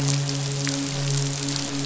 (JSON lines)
{"label": "biophony, midshipman", "recorder": "SoundTrap 500"}